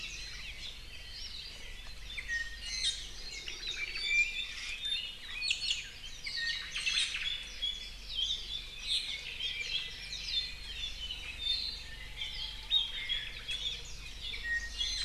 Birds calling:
Japanese Bush Warbler (Horornis diphone), Omao (Myadestes obscurus), Apapane (Himatione sanguinea), Iiwi (Drepanis coccinea)

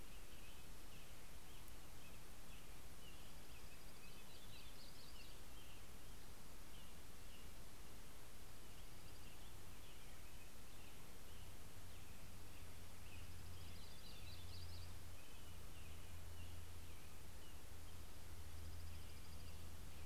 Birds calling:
Dark-eyed Junco (Junco hyemalis), American Robin (Turdus migratorius), Yellow-rumped Warbler (Setophaga coronata)

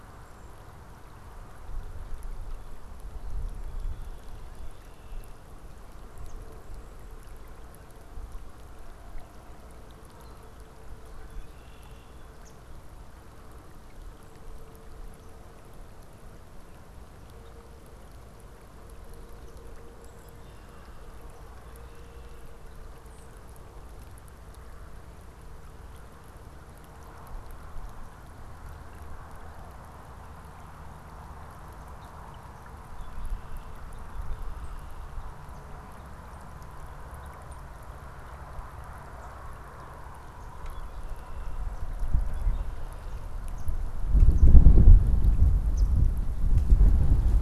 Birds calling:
Swamp Sparrow (Melospiza georgiana), Red-winged Blackbird (Agelaius phoeniceus)

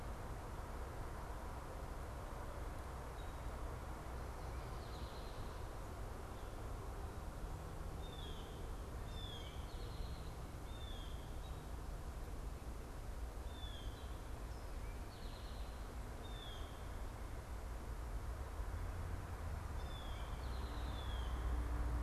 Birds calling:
Eastern Towhee (Pipilo erythrophthalmus), Blue Jay (Cyanocitta cristata)

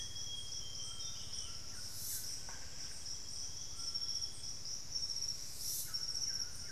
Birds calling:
White-throated Toucan (Ramphastos tucanus), Amazonian Grosbeak (Cyanoloxia rothschildii), unidentified bird, Buff-breasted Wren (Cantorchilus leucotis)

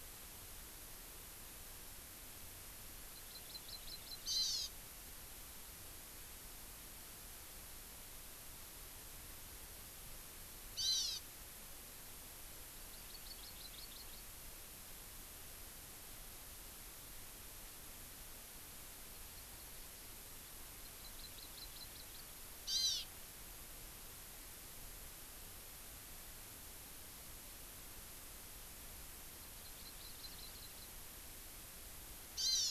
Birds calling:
Hawaii Amakihi (Chlorodrepanis virens)

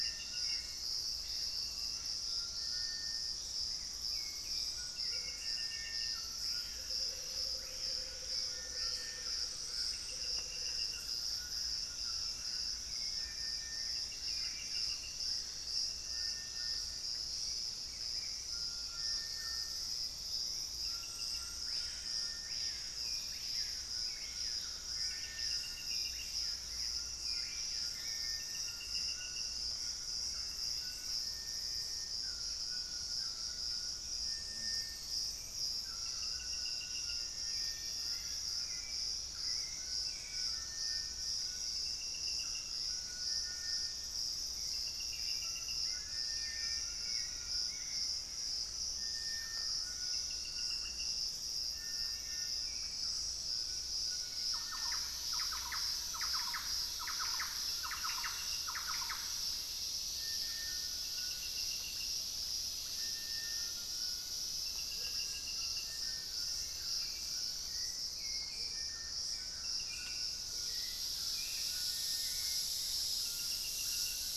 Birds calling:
Thrush-like Wren (Campylorhynchus turdinus), Little Tinamou (Crypturellus soui), unidentified bird, Amazonian Motmot (Momotus momota), Western Striolated-Puffbird (Nystalus obamai), White-throated Toucan (Ramphastos tucanus), Gray Antbird (Cercomacra cinerascens), Screaming Piha (Lipaugus vociferans), Hauxwell's Thrush (Turdus hauxwelli)

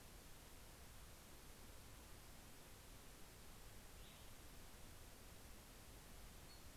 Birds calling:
Cassin's Vireo (Vireo cassinii)

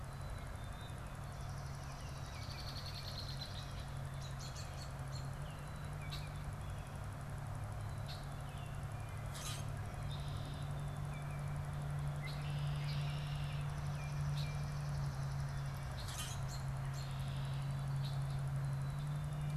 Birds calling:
Swamp Sparrow (Melospiza georgiana), Common Grackle (Quiscalus quiscula), Black-capped Chickadee (Poecile atricapillus), Red-winged Blackbird (Agelaius phoeniceus), American Robin (Turdus migratorius)

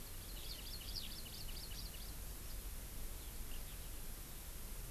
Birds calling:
Hawaii Amakihi (Chlorodrepanis virens), Eurasian Skylark (Alauda arvensis)

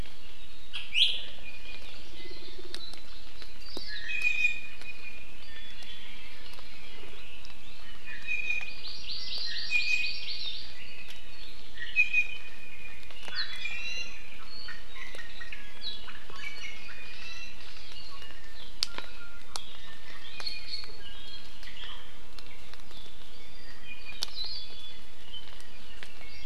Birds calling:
Red-billed Leiothrix (Leiothrix lutea), Hawaii Amakihi (Chlorodrepanis virens), Iiwi (Drepanis coccinea), Hawaii Akepa (Loxops coccineus)

